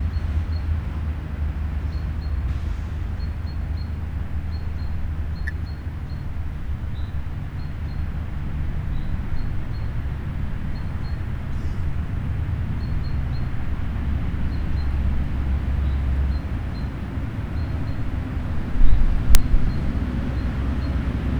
Are dogs barking?
no